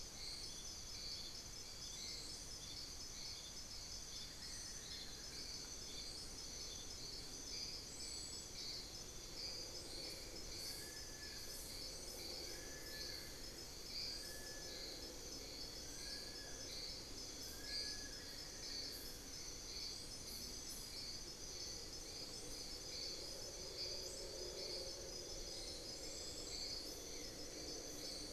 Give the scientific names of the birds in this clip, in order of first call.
Dendrocolaptes certhia, Nasica longirostris, Xiphorhynchus guttatus, Formicarius analis